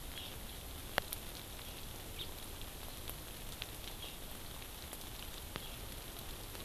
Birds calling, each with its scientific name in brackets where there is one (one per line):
House Finch (Haemorhous mexicanus)